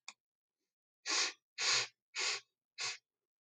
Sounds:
Sniff